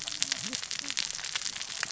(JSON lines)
{"label": "biophony, cascading saw", "recorder": "SoundTrap 600 or HydroMoth"}